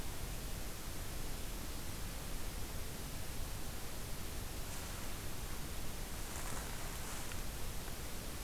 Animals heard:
forest ambience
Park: Katahdin Woods and Waters National Monument